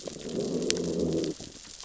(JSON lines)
{"label": "biophony, growl", "recorder": "SoundTrap 600 or HydroMoth"}